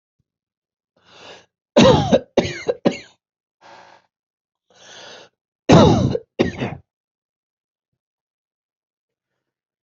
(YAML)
expert_labels:
- quality: good
  cough_type: dry
  dyspnea: false
  wheezing: false
  stridor: false
  choking: false
  congestion: false
  nothing: true
  diagnosis: upper respiratory tract infection
  severity: mild
age: 59
gender: female
respiratory_condition: false
fever_muscle_pain: false
status: symptomatic